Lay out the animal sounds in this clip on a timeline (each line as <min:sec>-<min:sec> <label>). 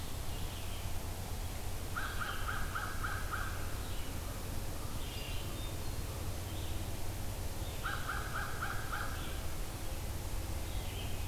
0:00.3-0:11.3 Red-eyed Vireo (Vireo olivaceus)
0:01.8-0:03.7 American Crow (Corvus brachyrhynchos)
0:05.0-0:06.0 Hermit Thrush (Catharus guttatus)
0:07.8-0:09.3 American Crow (Corvus brachyrhynchos)